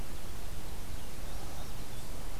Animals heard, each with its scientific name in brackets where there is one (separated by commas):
Indigo Bunting (Passerina cyanea)